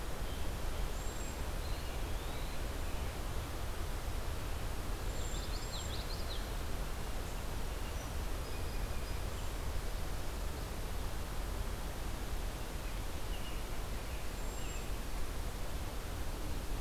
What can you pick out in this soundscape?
Cedar Waxwing, Eastern Wood-Pewee, Common Yellowthroat, Blue Jay, American Robin